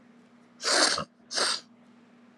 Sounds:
Sniff